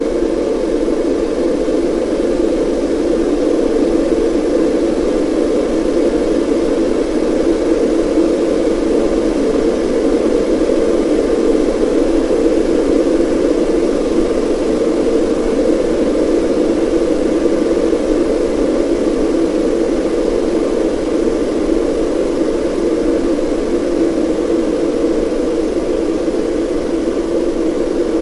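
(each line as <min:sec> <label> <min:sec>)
0:00.0 Gentle ambient sound of wind softly blowing. 0:28.2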